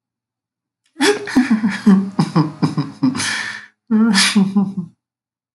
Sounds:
Laughter